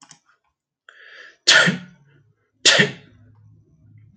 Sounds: Sneeze